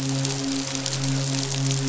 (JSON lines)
{"label": "biophony, midshipman", "recorder": "SoundTrap 500"}